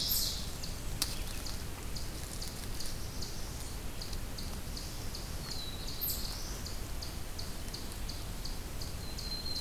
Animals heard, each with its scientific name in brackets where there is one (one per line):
Black-throated Blue Warbler (Setophaga caerulescens)
Black-throated Green Warbler (Setophaga virens)
Eastern Chipmunk (Tamias striatus)
Blackburnian Warbler (Setophaga fusca)
Ovenbird (Seiurus aurocapilla)